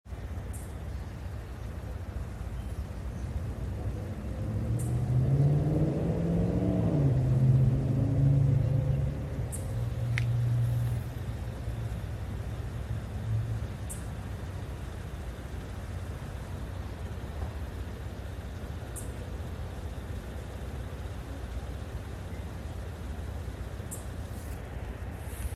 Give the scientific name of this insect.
Microcentrum rhombifolium